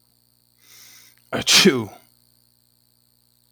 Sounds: Sneeze